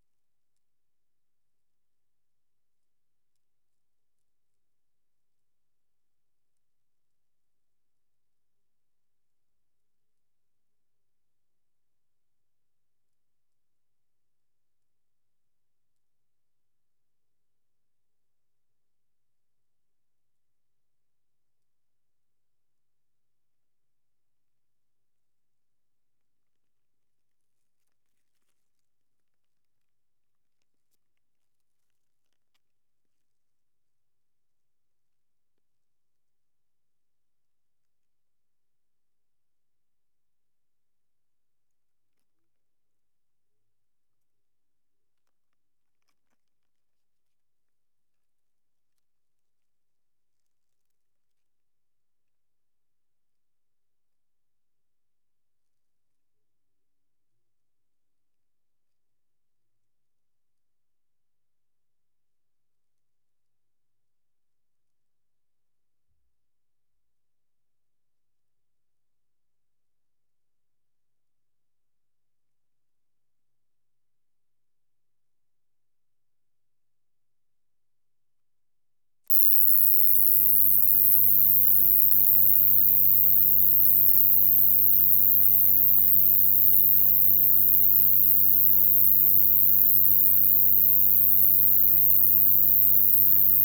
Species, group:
Ruspolia nitidula
Orthoptera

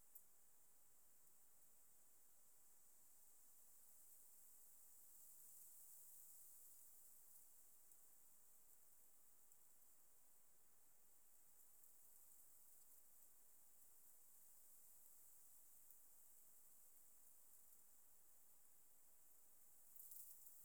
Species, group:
Leptophyes punctatissima
Orthoptera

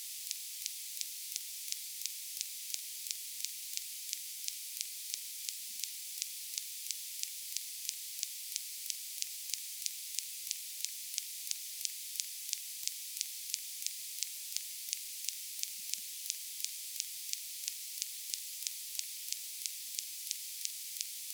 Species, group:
Poecilimon elegans
Orthoptera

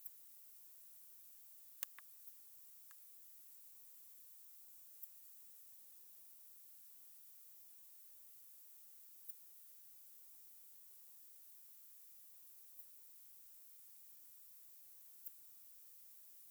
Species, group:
Poecilimon affinis
Orthoptera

